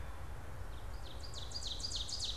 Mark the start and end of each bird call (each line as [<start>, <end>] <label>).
[0.99, 2.37] Ovenbird (Seiurus aurocapilla)